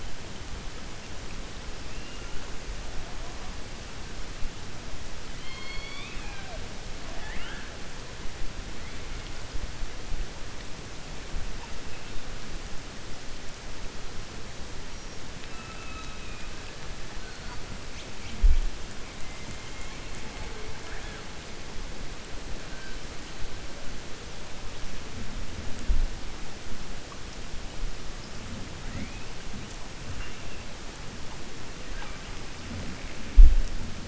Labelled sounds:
5.3	6.6	killer whale, 0.65 to 4.7 kHz
7.0	7.7	killer whale, 0.66 to 3.5 kHz

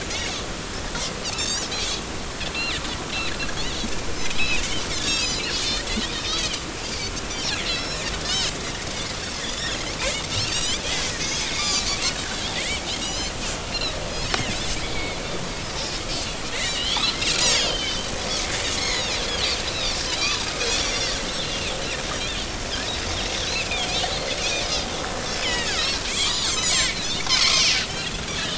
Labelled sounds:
1.2	2.8	Pacific white-sided dolphin, 2.2 to 7.0 kHz
4.4	6.6	Pacific white-sided dolphin, 1.6 to 7.3 kHz
7.3	8.5	Pacific white-sided dolphin, 2.6 to 6.0 kHz
9.4	10.8	Pacific white-sided dolphin, 2.0 to 8.0 kHz
11.2	11.9	Pacific white-sided dolphin, 2.1 to 6.7 kHz
12.5	13.3	Pacific white-sided dolphin, 1.8 to 6.3 kHz
14.4	15.2	Pacific white-sided dolphin, 2.1 to 3.3 kHz
16.1	17.1	Pacific white-sided dolphin, 1.8 to 4.6 kHz
17.4	18.1	Pacific white-sided dolphin, 2.9 to 7.0 kHz
18.8	20.4	Pacific white-sided dolphin, 1.9 to 7.1 kHz
20.8	21.7	Pacific white-sided dolphin, 2.4 to 5.9 kHz
23.3	23.9	Pacific white-sided dolphin, 2.0 to 6.0 kHz
24.4	24.9	Pacific white-sided dolphin, 2.2 to 3.8 kHz
25.4	27.8	Pacific white-sided dolphin, 1.1 to 6.4 kHz
28.3	28.5	Pacific white-sided dolphin, 2.8 to 3.6 kHz

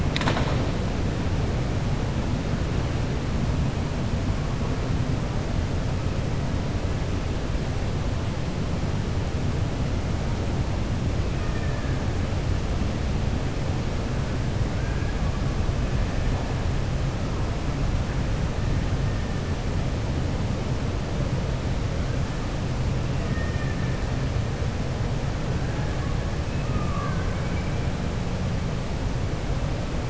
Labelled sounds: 11.3	11.9	killer whale, 1.2 to 2.6 kHz
23.2	23.9	killer whale, 1.2 to 2.5 kHz

